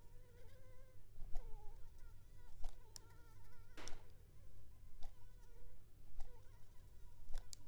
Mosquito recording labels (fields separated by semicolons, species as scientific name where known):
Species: Anopheles arabiensis; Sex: female; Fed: unfed; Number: one; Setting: cup